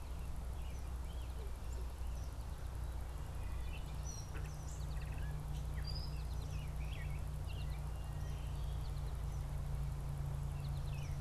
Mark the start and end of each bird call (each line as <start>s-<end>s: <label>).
0.0s-2.4s: Eastern Kingbird (Tyrannus tyrannus)
0.2s-1.5s: unidentified bird
3.4s-8.1s: Gray Catbird (Dumetella carolinensis)
3.4s-11.2s: American Goldfinch (Spinus tristis)
10.7s-11.2s: American Robin (Turdus migratorius)